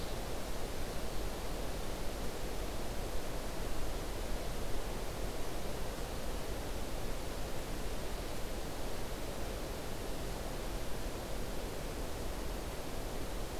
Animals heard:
forest ambience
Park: Marsh-Billings-Rockefeller National Historical Park